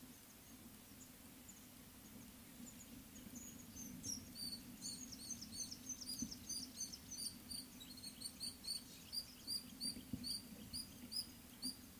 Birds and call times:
Rufous Chatterer (Argya rubiginosa): 4.4s, 7.5s, 10.3s
Mouse-colored Penduline-Tit (Anthoscopus musculus): 5.9s

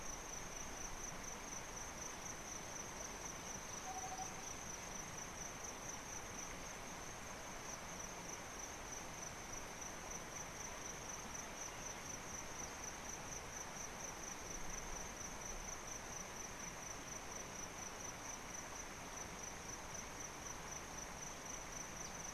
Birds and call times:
Tropical Boubou (Laniarius major): 4.0s

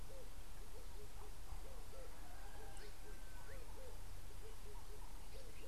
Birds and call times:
Red-eyed Dove (Streptopelia semitorquata): 1.9s

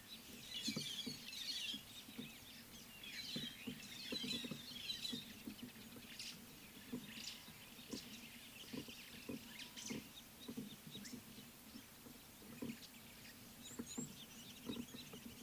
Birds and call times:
White-headed Buffalo-Weaver (Dinemellia dinemelli): 1.3s, 4.2s

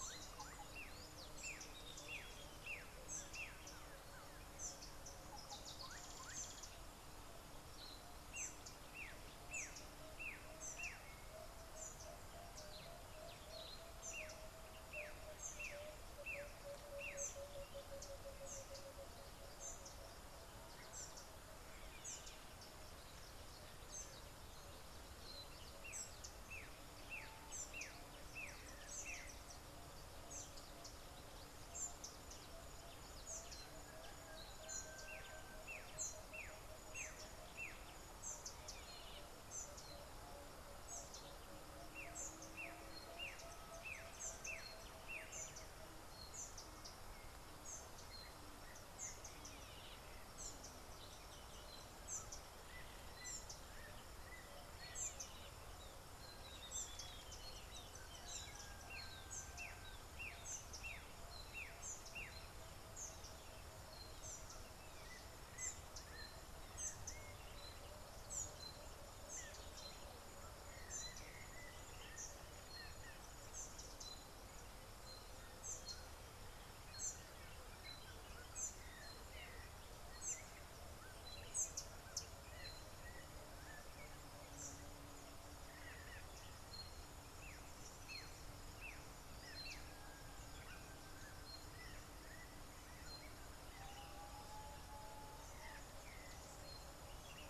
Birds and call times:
Variable Sunbird (Cinnyris venustus): 6.2s
Black-backed Puffback (Dryoscopus cubla): 15.7s, 27.9s, 60.9s
Collared Sunbird (Hedydipna collaris): 18.6s, 66.9s
Spectacled Weaver (Ploceus ocularis): 56.9s

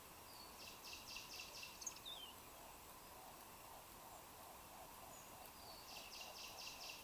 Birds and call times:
Hartlaub's Turaco (Tauraco hartlaubi): 5.0s

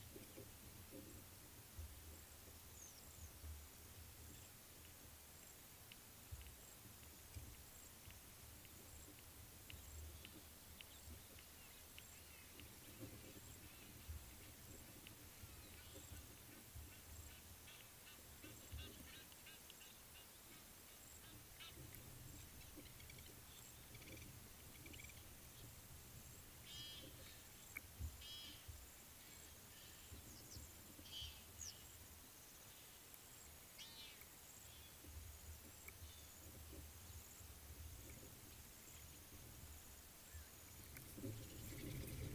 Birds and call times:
Egyptian Goose (Alopochen aegyptiaca): 18.8s, 26.9s, 31.3s
Blacksmith Lapwing (Vanellus armatus): 23.1s

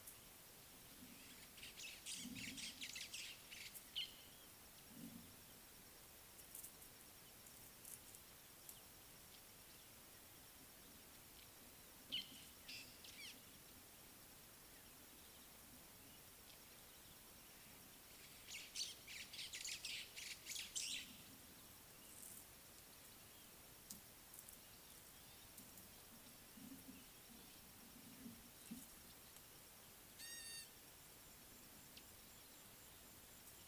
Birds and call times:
White-browed Sparrow-Weaver (Plocepasser mahali): 2.6s, 13.2s, 19.7s
Fork-tailed Drongo (Dicrurus adsimilis): 4.0s, 12.2s
Gray-backed Camaroptera (Camaroptera brevicaudata): 30.4s

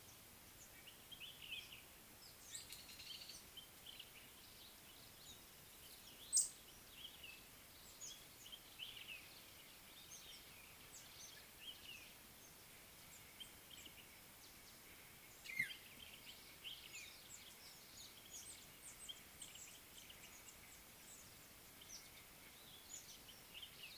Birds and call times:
Common Bulbul (Pycnonotus barbatus): 1.5s
Speckled Mousebird (Colius striatus): 6.4s, 18.4s
African Black-headed Oriole (Oriolus larvatus): 15.7s

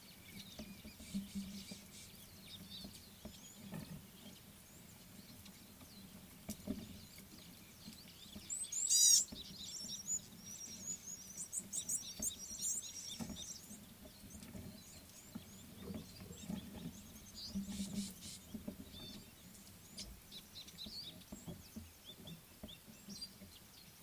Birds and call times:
Red-cheeked Cordonbleu (Uraeginthus bengalus): 8.6s, 11.9s
Gray-backed Camaroptera (Camaroptera brevicaudata): 9.0s
Meyer's Parrot (Poicephalus meyeri): 17.4s
Rattling Cisticola (Cisticola chiniana): 18.0s

